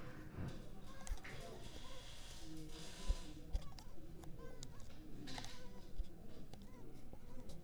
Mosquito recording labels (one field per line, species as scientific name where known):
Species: Culex pipiens complex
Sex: female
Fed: unfed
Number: one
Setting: cup